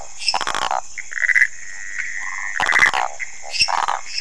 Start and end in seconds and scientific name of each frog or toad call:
0.0	4.2	Phyllomedusa sauvagii
3.4	3.5	Pithecopus azureus
3.5	4.2	Dendropsophus minutus